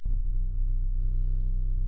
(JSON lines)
{"label": "anthrophony, boat engine", "recorder": "SoundTrap 300"}